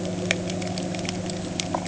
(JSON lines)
{"label": "anthrophony, boat engine", "recorder": "HydroMoth"}